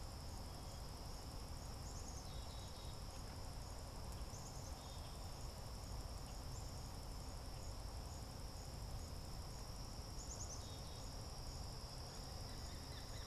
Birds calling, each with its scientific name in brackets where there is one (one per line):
Black-capped Chickadee (Poecile atricapillus)
unidentified bird